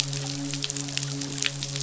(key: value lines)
label: biophony, midshipman
recorder: SoundTrap 500